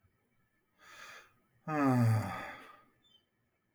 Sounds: Sigh